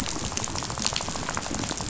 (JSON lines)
{"label": "biophony, rattle", "recorder": "SoundTrap 500"}